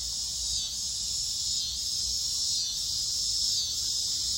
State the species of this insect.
Neotibicen pruinosus